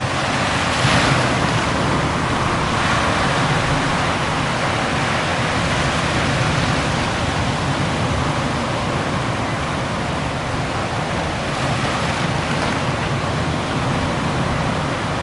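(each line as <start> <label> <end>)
0.0 Wind blowing in the mountains. 15.2
0.6 A loud squall blows strongly in the mountains. 1.5
2.7 A loud squall blows strongly in the mountains. 3.4
11.5 A loud squall blows strongly in the mountains. 13.0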